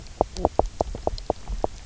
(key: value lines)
label: biophony, knock croak
recorder: SoundTrap 300